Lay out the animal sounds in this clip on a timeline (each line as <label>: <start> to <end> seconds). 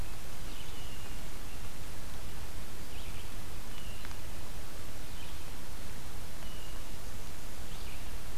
Red-eyed Vireo (Vireo olivaceus): 0.4 to 8.4 seconds
Hermit Thrush (Catharus guttatus): 0.5 to 1.4 seconds
Hermit Thrush (Catharus guttatus): 6.3 to 7.0 seconds